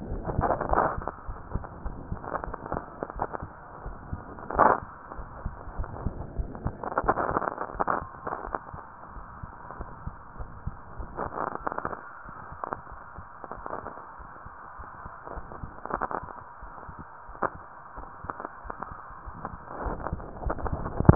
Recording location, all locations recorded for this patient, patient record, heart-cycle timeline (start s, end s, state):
aortic valve (AV)
aortic valve (AV)+pulmonary valve (PV)+tricuspid valve (TV)+mitral valve (MV)
#Age: Child
#Sex: Female
#Height: 149.0 cm
#Weight: 32.9 kg
#Pregnancy status: False
#Murmur: Present
#Murmur locations: aortic valve (AV)+mitral valve (MV)+pulmonary valve (PV)+tricuspid valve (TV)
#Most audible location: tricuspid valve (TV)
#Systolic murmur timing: Holosystolic
#Systolic murmur shape: Plateau
#Systolic murmur grading: II/VI
#Systolic murmur pitch: Medium
#Systolic murmur quality: Harsh
#Diastolic murmur timing: nan
#Diastolic murmur shape: nan
#Diastolic murmur grading: nan
#Diastolic murmur pitch: nan
#Diastolic murmur quality: nan
#Outcome: Abnormal
#Campaign: 2015 screening campaign
0.00	1.26	unannotated
1.26	1.38	S1
1.38	1.50	systole
1.50	1.64	S2
1.64	1.84	diastole
1.84	1.98	S1
1.98	2.10	systole
2.10	2.20	S2
2.20	2.46	diastole
2.46	2.56	S1
2.56	2.72	systole
2.72	2.86	S2
2.86	3.14	diastole
3.14	3.28	S1
3.28	3.42	systole
3.42	3.52	S2
3.52	3.82	diastole
3.82	3.96	S1
3.96	4.10	systole
4.10	4.22	S2
4.22	5.16	unannotated
5.16	5.30	S1
5.30	5.44	systole
5.44	5.54	S2
5.54	5.74	diastole
5.74	5.88	S1
5.88	6.00	systole
6.00	6.14	S2
6.14	6.34	diastole
6.34	6.50	S1
6.50	6.64	systole
6.64	6.76	S2
6.76	9.11	unannotated
9.11	9.24	S1
9.24	9.38	systole
9.38	9.48	S2
9.48	9.76	diastole
9.76	9.90	S1
9.90	10.06	systole
10.06	10.16	S2
10.16	10.39	diastole
10.39	10.54	S1
10.54	10.66	systole
10.66	10.76	S2
10.76	10.97	diastole
10.97	11.10	S1
11.10	21.15	unannotated